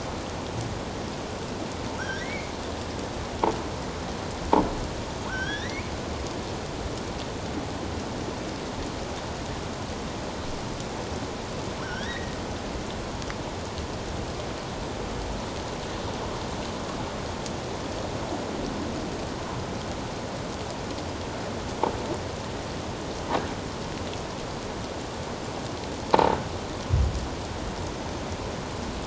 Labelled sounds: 2.0	2.5	killer whale, offshore, 1.3 to 5.7 kHz
5.3	5.9	killer whale, offshore, 1.3 to 6.0 kHz
11.8	12.4	killer whale, offshore, 1.3 to 5.7 kHz

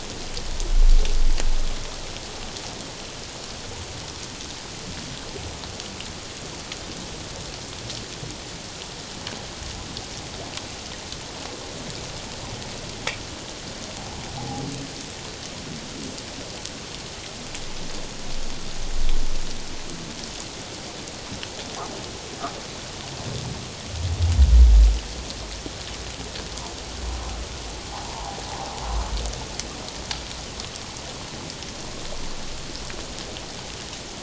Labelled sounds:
14.4	14.6	humpback whale, 0.78 to 0.91 kHz
27.9	28.3	humpback whale, 0.78 to 1.1 kHz

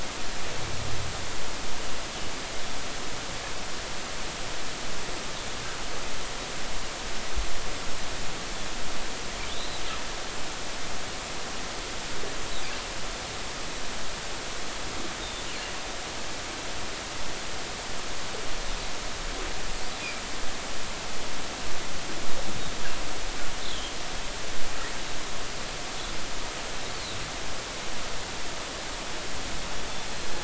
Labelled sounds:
9.5	9.8	humpback whale, 3.3 to 4.2 kHz
23.6	23.9	humpback whale, 3.0 to 3.7 kHz
26.9	27.2	humpback whale, 3.6 to 4.5 kHz

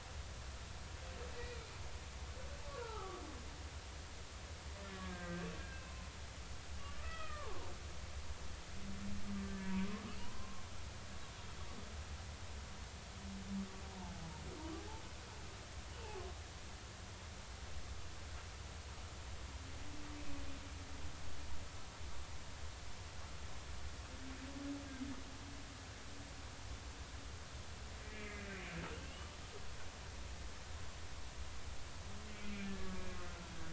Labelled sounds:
2.7	3.2	humpback whale, 0.80 to 1.5 kHz
4.8	6.1	humpback whale, 0.96 to 1.8 kHz
6.8	7.5	humpback whale, 0.99 to 2.7 kHz
9.5	10.6	humpback whale, 0.90 to 1.8 kHz
28.1	28.6	humpback whale, 1.9 to 2.6 kHz
29.0	29.4	humpback whale, 2.6 to 3.1 kHz
32.4	33.1	humpback whale, 1.1 to 2.5 kHz

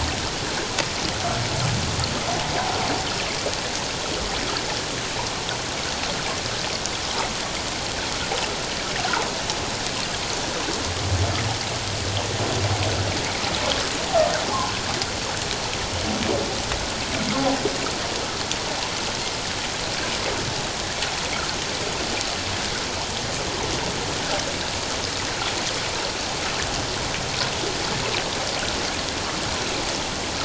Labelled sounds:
14.5	14.7	humpback whale, 0.81 to 1.2 kHz

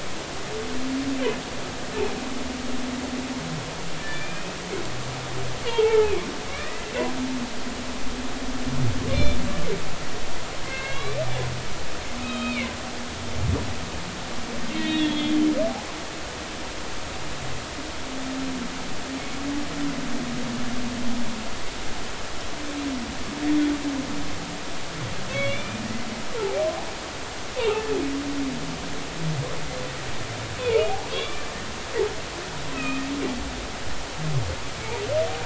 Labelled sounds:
4.0	4.5	humpback whale, 1.7 to 3.6 kHz
5.6	6.9	humpback whale, 0.80 to 3.0 kHz
9.1	9.4	humpback whale, 2.2 to 3.6 kHz
10.6	11.2	humpback whale, 1.5 to 4.1 kHz
12.2	12.7	humpback whale, 1.2 to 3.9 kHz
14.8	15.4	humpback whale, 1.8 to 3.8 kHz
25.3	25.9	humpback whale, 1.1 to 3.6 kHz
27.6	27.8	humpback whale, 0.80 to 2.9 kHz
30.8	31.4	humpback whale, 0.80 to 3.6 kHz
32.7	33.0	humpback whale, 1.2 to 2.7 kHz

